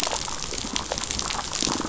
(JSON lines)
{"label": "biophony", "recorder": "SoundTrap 500"}